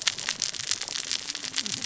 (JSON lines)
{"label": "biophony, cascading saw", "recorder": "SoundTrap 600 or HydroMoth"}